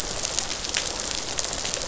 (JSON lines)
{"label": "biophony, rattle response", "recorder": "SoundTrap 500"}